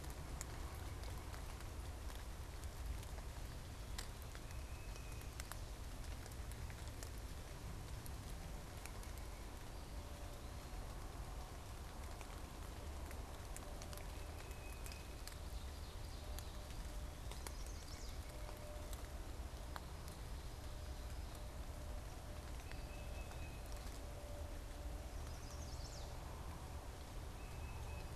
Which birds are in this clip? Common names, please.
Tufted Titmouse, White-breasted Nuthatch, unidentified bird, Chestnut-sided Warbler